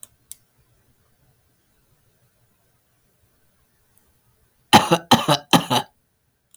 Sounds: Cough